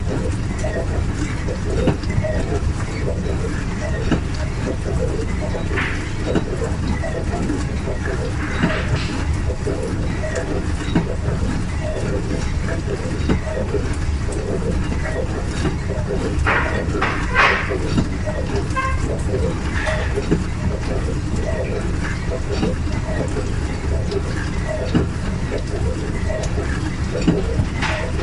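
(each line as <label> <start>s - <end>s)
Dishwasher running with the rhythmic sound of water. 0.0s - 28.2s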